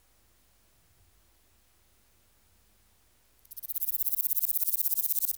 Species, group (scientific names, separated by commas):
Stenobothrus stigmaticus, Orthoptera